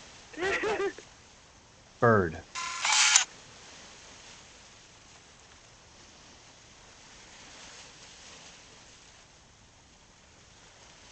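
At 0.32 seconds, laughter is heard. Then, at 2.02 seconds, a voice says "Bird." After that, at 2.54 seconds, you can hear the sound of a camera. An unchanging noise lies in the background.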